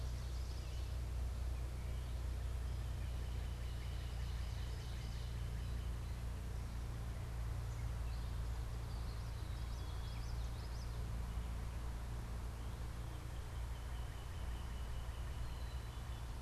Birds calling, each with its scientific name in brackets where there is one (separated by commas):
Black-capped Chickadee (Poecile atricapillus), Ovenbird (Seiurus aurocapilla), Common Yellowthroat (Geothlypis trichas), Northern Cardinal (Cardinalis cardinalis)